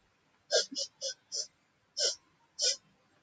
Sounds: Sniff